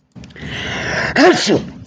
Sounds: Sneeze